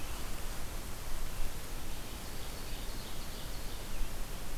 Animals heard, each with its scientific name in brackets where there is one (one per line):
Ovenbird (Seiurus aurocapilla)